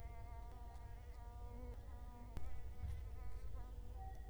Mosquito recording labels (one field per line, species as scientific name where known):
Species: Culex quinquefasciatus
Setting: cup